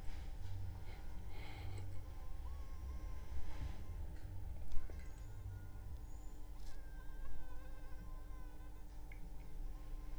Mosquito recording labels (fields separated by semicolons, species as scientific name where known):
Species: Anopheles funestus s.l.; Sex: female; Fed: unfed; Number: one; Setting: cup